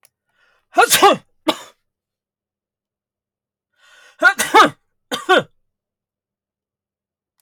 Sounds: Sneeze